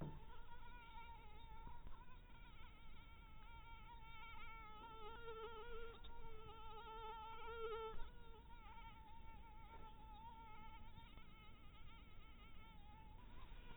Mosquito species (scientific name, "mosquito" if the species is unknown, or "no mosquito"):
mosquito